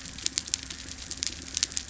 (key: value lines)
label: anthrophony, boat engine
recorder: SoundTrap 300